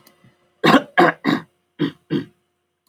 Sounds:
Throat clearing